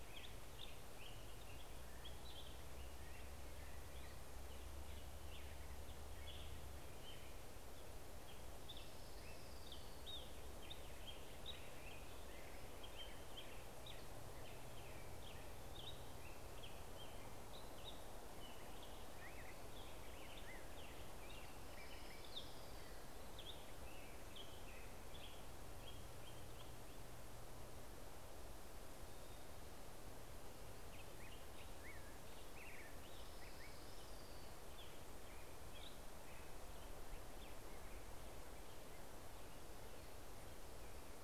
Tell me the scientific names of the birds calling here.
Turdus migratorius, Pheucticus melanocephalus, Leiothlypis celata